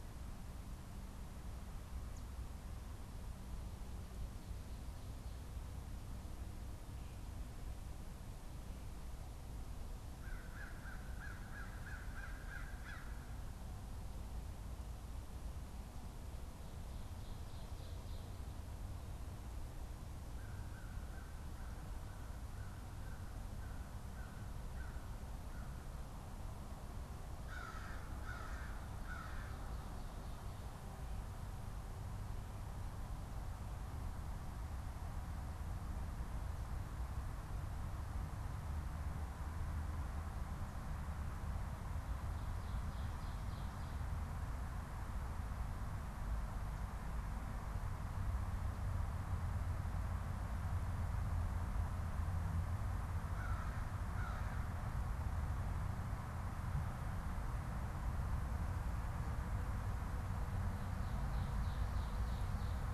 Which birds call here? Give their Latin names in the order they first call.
Corvus brachyrhynchos, Seiurus aurocapilla